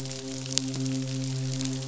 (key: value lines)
label: biophony, midshipman
recorder: SoundTrap 500